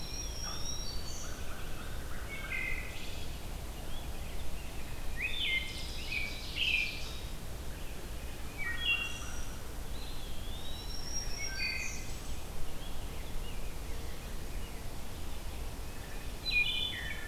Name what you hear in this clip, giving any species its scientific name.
Contopus virens, Setophaga virens, Corvus brachyrhynchos, Hylocichla mustelina, Turdus migratorius, Seiurus aurocapilla